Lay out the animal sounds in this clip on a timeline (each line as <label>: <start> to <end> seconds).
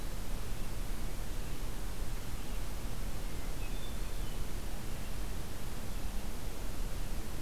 Red-eyed Vireo (Vireo olivaceus): 0.0 to 5.4 seconds
Hermit Thrush (Catharus guttatus): 3.5 to 4.5 seconds